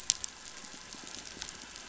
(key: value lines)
label: biophony
recorder: SoundTrap 500

label: anthrophony, boat engine
recorder: SoundTrap 500